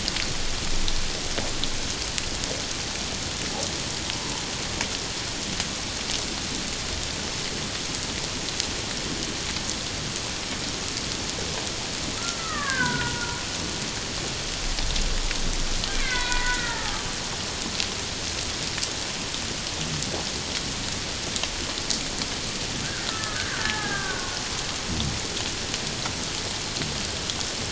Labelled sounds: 12.4	13.2	killer whale, Bigg's (transient), 0.91 to 2.2 kHz
15.9	17.1	killer whale, Bigg's (transient), 0.78 to 3.5 kHz
23.1	24.3	killer whale, Bigg's (transient), 0.78 to 1.9 kHz

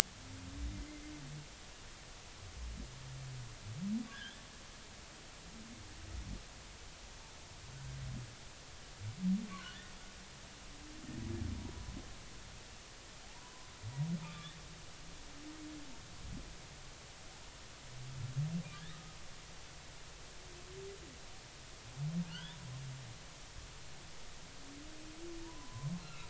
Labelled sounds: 0.7	1.0	humpback whale, 2.0 to 2.1 kHz
4.1	4.5	humpback whale, 1.4 to 1.9 kHz
13.3	13.7	humpback whale, 0.93 to 1.1 kHz
14.2	14.5	humpback whale, 1.1 to 1.3 kHz
18.7	19.2	humpback whale, 1.2 to 2.0 kHz
22.3	22.6	humpback whale, 1.3 to 3.7 kHz
25.4	26.2	humpback whale, 0.86 to 2.8 kHz

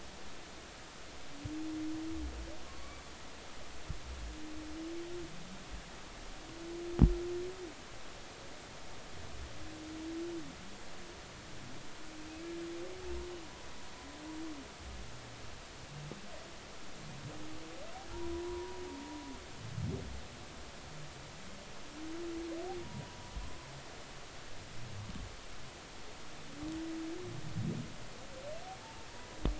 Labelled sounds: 2.6	3.0	humpback whale, 1.0 to 1.2 kHz
18.4	18.8	humpback whale, 0.90 to 1.1 kHz
22.8	23.2	humpback whale, 0.93 to 1.0 kHz
29.1	29.4	humpback whale, 0.93 to 1.0 kHz

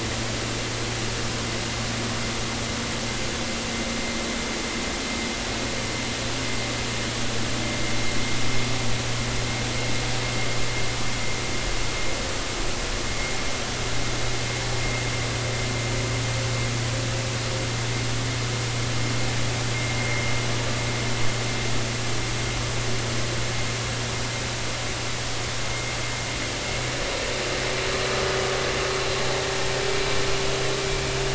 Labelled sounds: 20.0	20.3	vessel noise, 2.1 to 2.2 kHz

